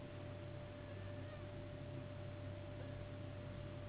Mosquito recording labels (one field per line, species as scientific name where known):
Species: Anopheles gambiae s.s.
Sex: female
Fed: unfed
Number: one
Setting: insect culture